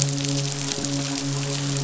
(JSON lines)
{"label": "biophony, midshipman", "recorder": "SoundTrap 500"}